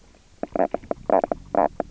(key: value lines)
label: biophony, knock croak
recorder: SoundTrap 300